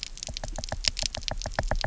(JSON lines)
{"label": "biophony, knock", "recorder": "SoundTrap 300"}